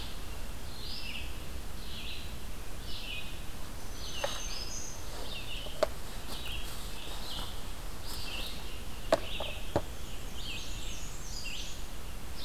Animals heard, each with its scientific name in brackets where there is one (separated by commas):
Red-eyed Vireo (Vireo olivaceus), Black-and-white Warbler (Mniotilta varia), Black-throated Green Warbler (Setophaga virens)